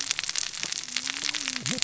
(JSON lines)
{"label": "biophony, cascading saw", "recorder": "SoundTrap 600 or HydroMoth"}